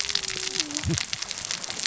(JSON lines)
{"label": "biophony, cascading saw", "recorder": "SoundTrap 600 or HydroMoth"}